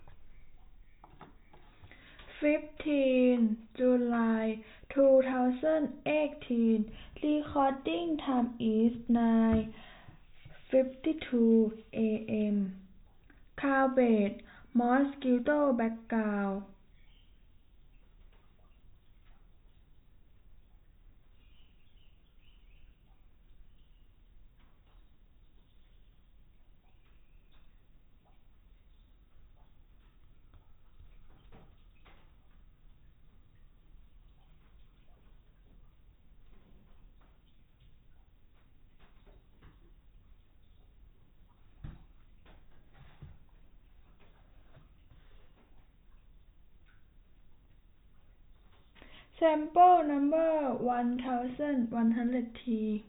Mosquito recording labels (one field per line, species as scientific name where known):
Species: no mosquito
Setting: cup